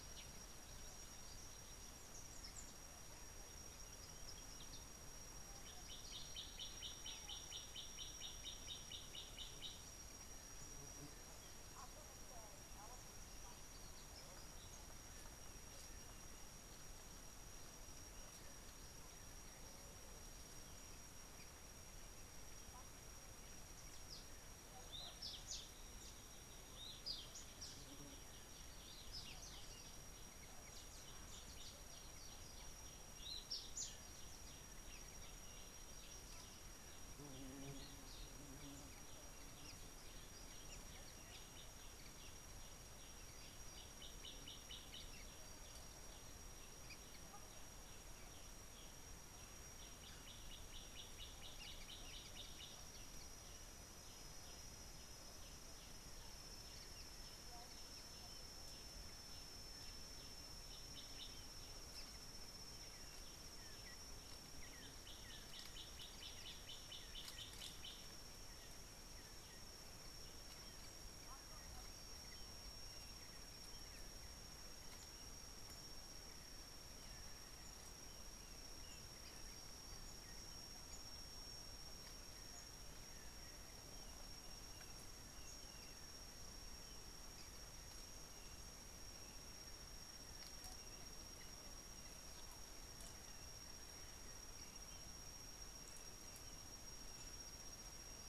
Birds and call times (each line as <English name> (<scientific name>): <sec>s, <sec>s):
Gray Apalis (Apalis cinerea): 6.5s, 44.5s, 66.5s
African Emerald Cuckoo (Chrysococcyx cupreus): 64.7s